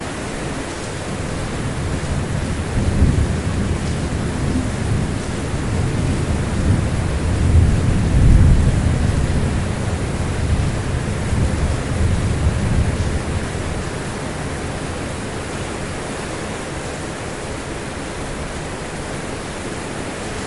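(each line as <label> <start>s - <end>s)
Heavy rain is falling. 0.0s - 1.9s
A thunderstorm rumbles in the distance. 1.9s - 15.4s
Heavy rain is falling. 15.4s - 20.5s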